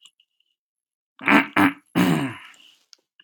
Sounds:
Throat clearing